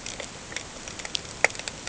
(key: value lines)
label: ambient
recorder: HydroMoth